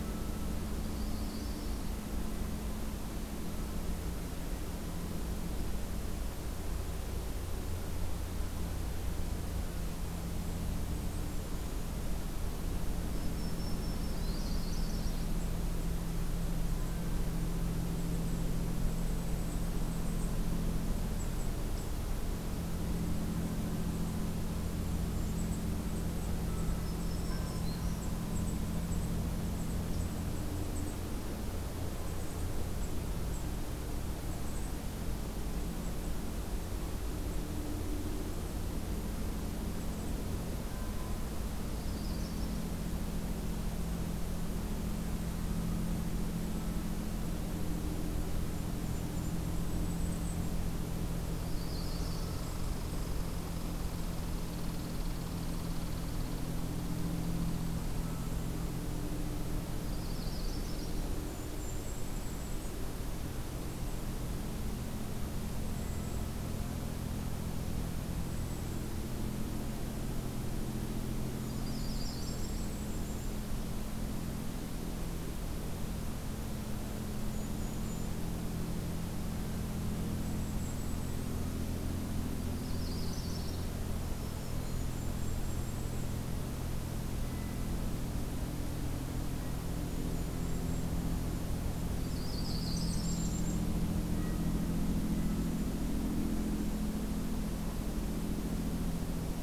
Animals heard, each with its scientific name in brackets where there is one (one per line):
Red Squirrel (Tamiasciurus hudsonicus)
Golden-crowned Kinglet (Regulus satrapa)
Yellow-rumped Warbler (Setophaga coronata)
Black-throated Green Warbler (Setophaga virens)
unidentified call